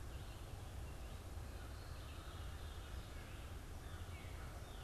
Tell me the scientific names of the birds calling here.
Corvus brachyrhynchos, Cardinalis cardinalis